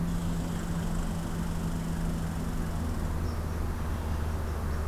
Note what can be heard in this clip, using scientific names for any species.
Tamiasciurus hudsonicus, Agelaius phoeniceus